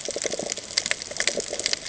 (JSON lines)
{"label": "ambient", "recorder": "HydroMoth"}